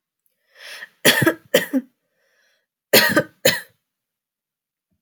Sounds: Cough